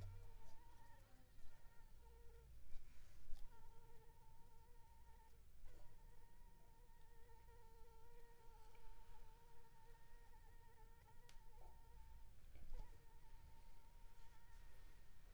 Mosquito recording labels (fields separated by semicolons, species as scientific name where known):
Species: Anopheles arabiensis; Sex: female; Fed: unfed; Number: one; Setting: cup